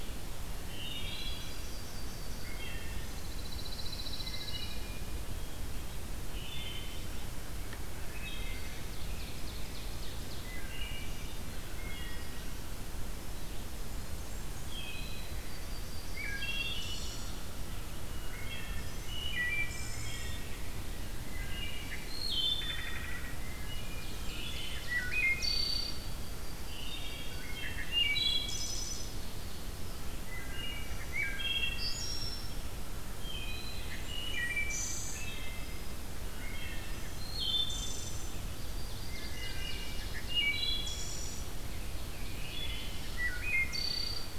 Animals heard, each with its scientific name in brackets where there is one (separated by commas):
Blackburnian Warbler (Setophaga fusca), American Crow (Corvus brachyrhynchos), Yellow-rumped Warbler (Setophaga coronata), Wood Thrush (Hylocichla mustelina), Ovenbird (Seiurus aurocapilla), Pine Warbler (Setophaga pinus)